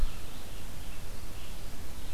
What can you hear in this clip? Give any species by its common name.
American Crow, Red-eyed Vireo